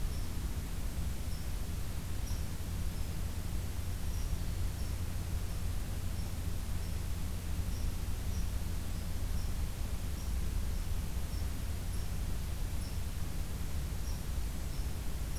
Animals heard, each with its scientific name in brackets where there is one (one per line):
Red Squirrel (Tamiasciurus hudsonicus)